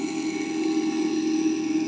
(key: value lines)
label: anthrophony, boat engine
recorder: HydroMoth